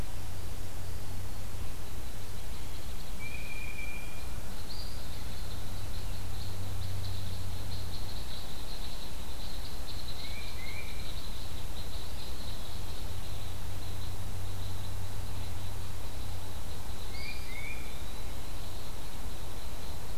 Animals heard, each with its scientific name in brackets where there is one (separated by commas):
Eastern Wood-Pewee (Contopus virens), unknown mammal, Tufted Titmouse (Baeolophus bicolor)